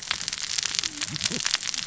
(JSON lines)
{"label": "biophony, cascading saw", "recorder": "SoundTrap 600 or HydroMoth"}